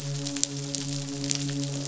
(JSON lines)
{"label": "biophony, midshipman", "recorder": "SoundTrap 500"}